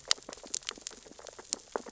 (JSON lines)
{"label": "biophony, sea urchins (Echinidae)", "recorder": "SoundTrap 600 or HydroMoth"}